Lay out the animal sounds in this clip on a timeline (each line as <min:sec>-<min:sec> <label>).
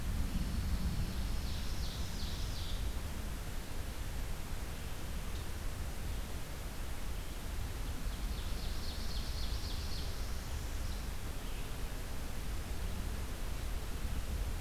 0:00.2-0:01.9 Pine Warbler (Setophaga pinus)
0:01.2-0:03.1 Ovenbird (Seiurus aurocapilla)
0:07.8-0:10.3 Ovenbird (Seiurus aurocapilla)
0:09.9-0:11.2 Northern Parula (Setophaga americana)